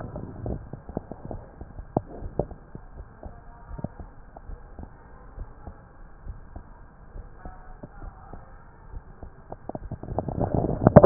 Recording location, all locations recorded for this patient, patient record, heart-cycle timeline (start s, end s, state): aortic valve (AV)
aortic valve (AV)+pulmonary valve (PV)+tricuspid valve (TV)+mitral valve (MV)
#Age: Child
#Sex: Male
#Height: 149.0 cm
#Weight: 52.9 kg
#Pregnancy status: False
#Murmur: Present
#Murmur locations: pulmonary valve (PV)+tricuspid valve (TV)
#Most audible location: tricuspid valve (TV)
#Systolic murmur timing: Early-systolic
#Systolic murmur shape: Plateau
#Systolic murmur grading: I/VI
#Systolic murmur pitch: Low
#Systolic murmur quality: Blowing
#Diastolic murmur timing: nan
#Diastolic murmur shape: nan
#Diastolic murmur grading: nan
#Diastolic murmur pitch: nan
#Diastolic murmur quality: nan
#Outcome: Normal
#Campaign: 2015 screening campaign
0.00	2.95	unannotated
2.95	3.08	S1
3.08	3.22	systole
3.22	3.36	S2
3.36	3.66	diastole
3.66	3.79	S1
3.79	3.97	systole
3.97	4.08	S2
4.08	4.46	diastole
4.46	4.58	S1
4.58	4.76	systole
4.76	4.90	S2
4.90	5.34	diastole
5.34	5.52	S1
5.52	5.64	systole
5.64	5.74	S2
5.74	6.24	diastole
6.24	6.38	S1
6.38	6.53	systole
6.53	6.65	S2
6.65	7.14	diastole
7.14	7.26	S1
7.26	7.40	systole
7.40	7.52	S2
7.52	8.00	diastole
8.00	8.12	S1
8.12	8.29	systole
8.29	8.43	S2
8.43	8.90	diastole
8.90	9.04	S1
9.04	9.20	systole
9.20	9.32	S2
9.32	11.06	unannotated